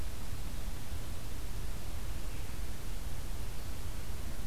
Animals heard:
forest ambience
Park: Marsh-Billings-Rockefeller National Historical Park